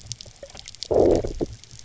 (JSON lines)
{"label": "biophony, low growl", "recorder": "SoundTrap 300"}